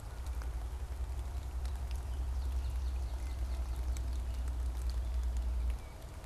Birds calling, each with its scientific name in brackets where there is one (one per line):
Wood Thrush (Hylocichla mustelina)
Swamp Sparrow (Melospiza georgiana)